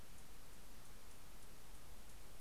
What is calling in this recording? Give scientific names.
Calypte anna